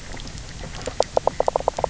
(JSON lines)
{"label": "biophony, knock croak", "recorder": "SoundTrap 300"}